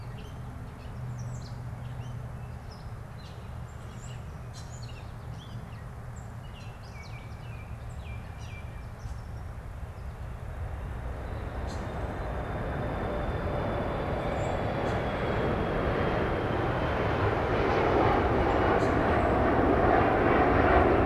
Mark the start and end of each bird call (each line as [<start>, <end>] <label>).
[0.00, 8.86] Gray Catbird (Dumetella carolinensis)
[6.36, 9.16] Baltimore Oriole (Icterus galbula)